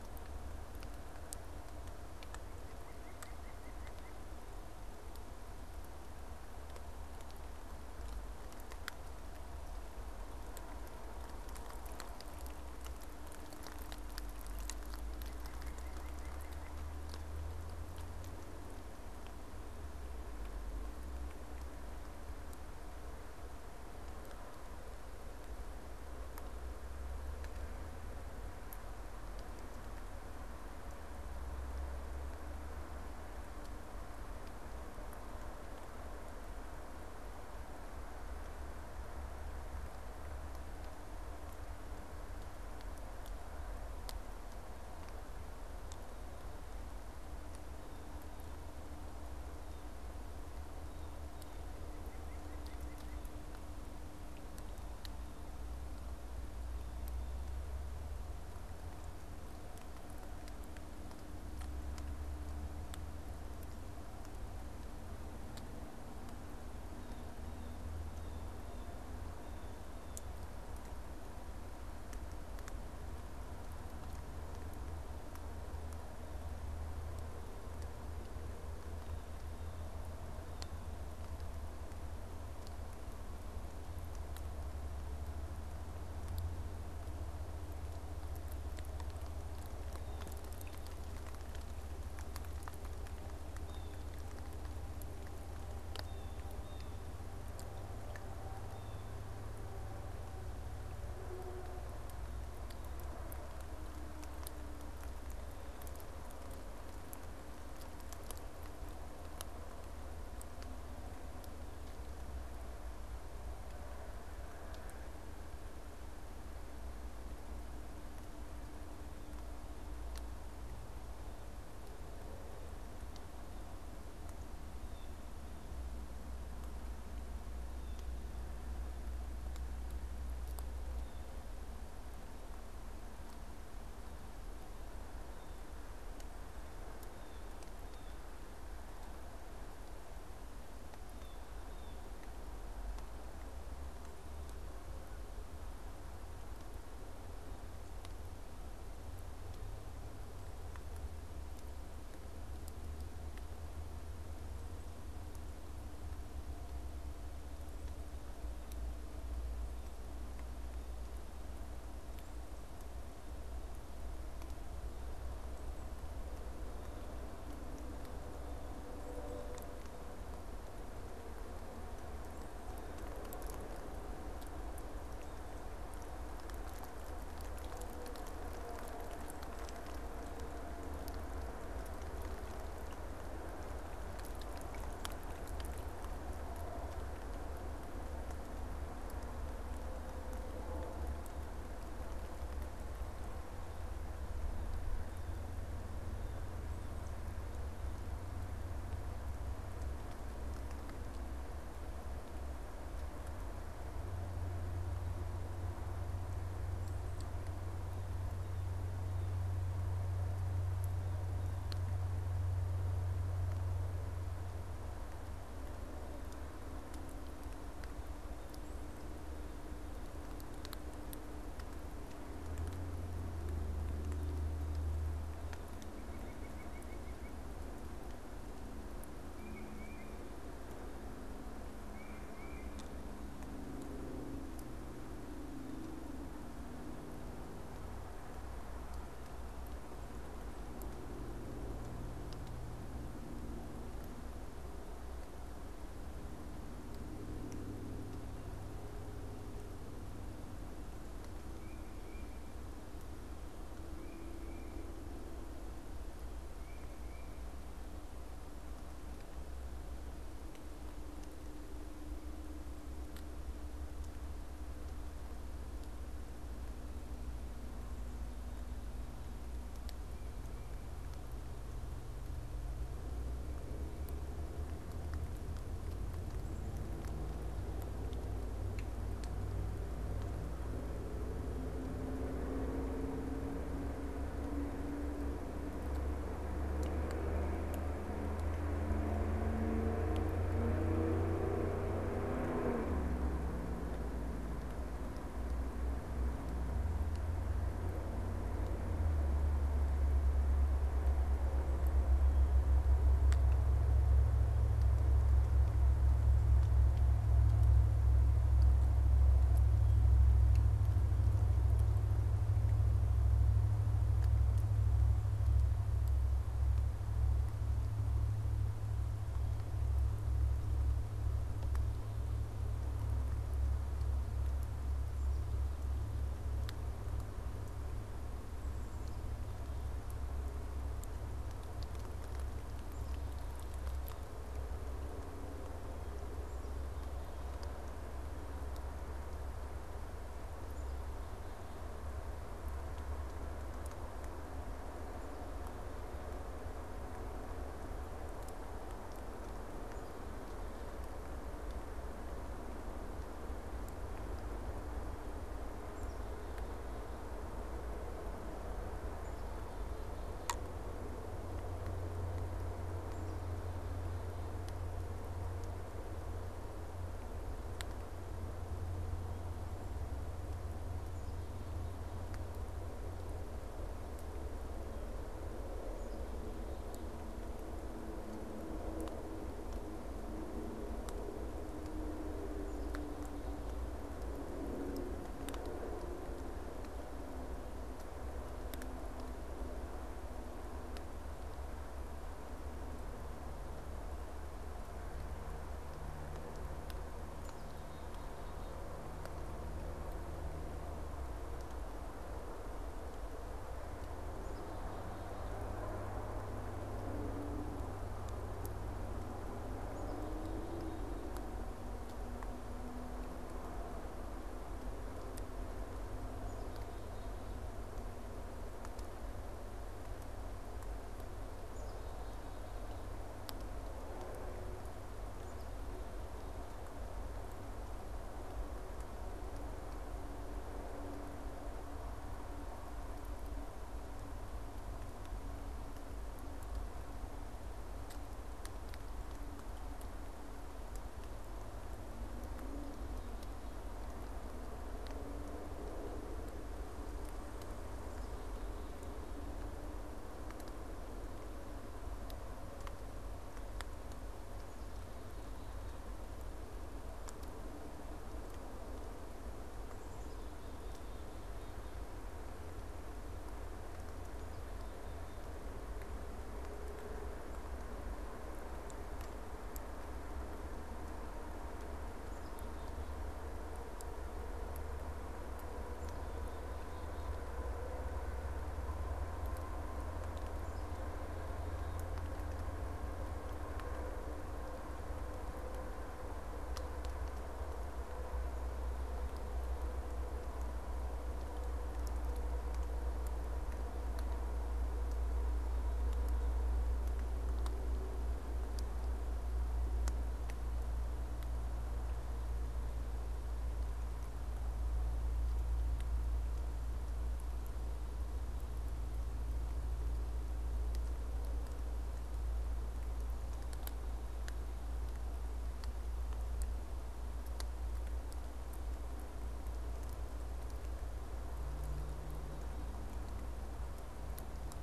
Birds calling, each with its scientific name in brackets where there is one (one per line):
Black-capped Chickadee (Poecile atricapillus)
Blue Jay (Cyanocitta cristata)
Tufted Titmouse (Baeolophus bicolor)
White-breasted Nuthatch (Sitta carolinensis)